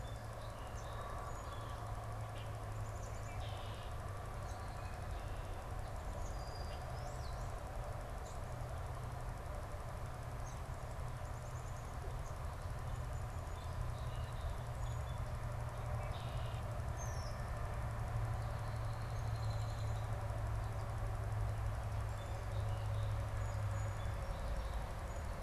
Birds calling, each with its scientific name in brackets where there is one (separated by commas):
Song Sparrow (Melospiza melodia), Red-winged Blackbird (Agelaius phoeniceus), Brown-headed Cowbird (Molothrus ater), Black-capped Chickadee (Poecile atricapillus), unidentified bird